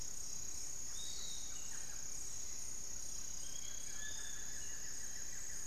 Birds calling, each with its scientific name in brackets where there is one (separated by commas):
Hauxwell's Thrush (Turdus hauxwelli), Cinereous Tinamou (Crypturellus cinereus), Barred Forest-Falcon (Micrastur ruficollis), Piratic Flycatcher (Legatus leucophaius), Thrush-like Wren (Campylorhynchus turdinus), Buff-throated Woodcreeper (Xiphorhynchus guttatus)